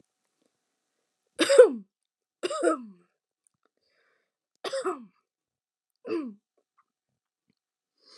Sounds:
Throat clearing